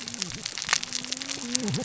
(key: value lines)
label: biophony, cascading saw
recorder: SoundTrap 600 or HydroMoth